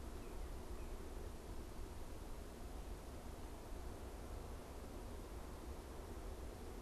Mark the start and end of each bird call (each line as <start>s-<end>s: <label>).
0.0s-1.5s: Northern Cardinal (Cardinalis cardinalis)